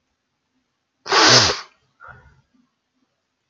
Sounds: Sniff